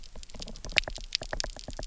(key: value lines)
label: biophony, knock
recorder: SoundTrap 300